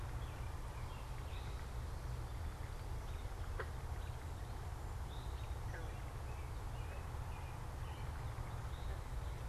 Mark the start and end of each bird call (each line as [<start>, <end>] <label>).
[0.00, 9.48] American Robin (Turdus migratorius)
[0.00, 9.48] Eastern Towhee (Pipilo erythrophthalmus)